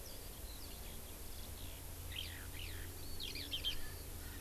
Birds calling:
Erckel's Francolin (Pternistis erckelii)
Eurasian Skylark (Alauda arvensis)

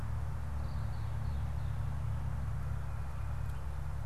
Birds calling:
Red-winged Blackbird (Agelaius phoeniceus)

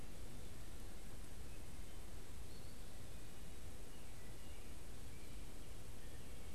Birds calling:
Eastern Wood-Pewee (Contopus virens)
unidentified bird

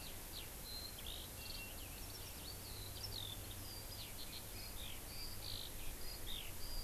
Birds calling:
Eurasian Skylark (Alauda arvensis)

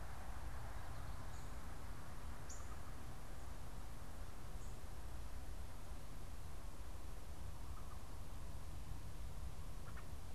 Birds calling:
American Robin (Turdus migratorius)
unidentified bird

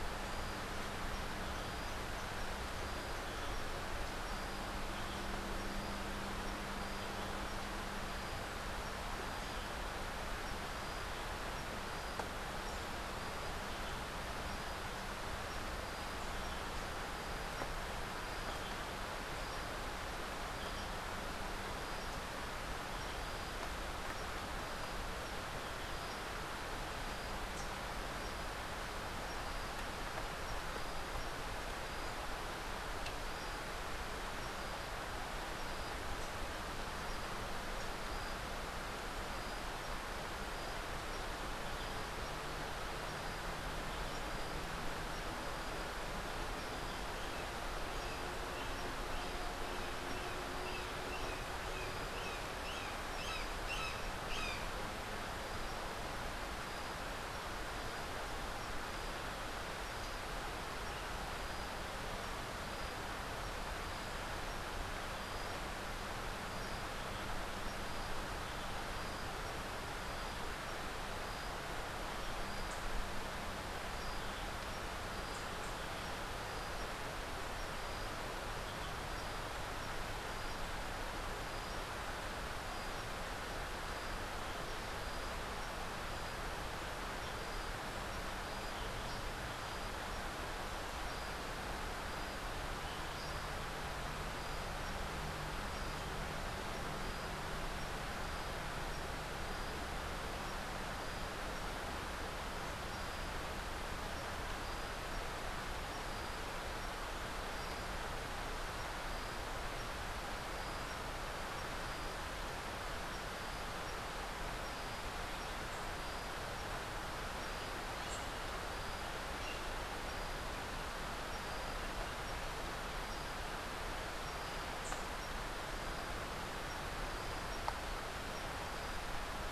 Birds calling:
Rufous-capped Warbler (Basileuterus rufifrons)
Brown Jay (Psilorhinus morio)

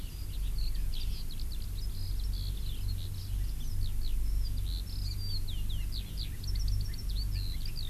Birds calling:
Eurasian Skylark (Alauda arvensis)

